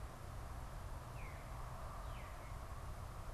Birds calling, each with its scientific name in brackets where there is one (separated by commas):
Northern Cardinal (Cardinalis cardinalis), Veery (Catharus fuscescens)